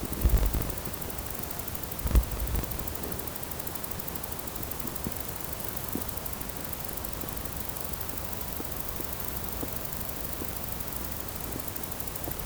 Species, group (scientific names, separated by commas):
Stenobothrus rubicundulus, Orthoptera